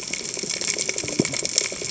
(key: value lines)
label: biophony, cascading saw
recorder: HydroMoth